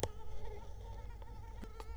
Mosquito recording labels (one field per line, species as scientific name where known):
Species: Culex quinquefasciatus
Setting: cup